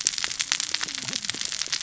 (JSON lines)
{"label": "biophony, cascading saw", "recorder": "SoundTrap 600 or HydroMoth"}